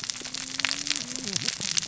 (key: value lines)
label: biophony, cascading saw
recorder: SoundTrap 600 or HydroMoth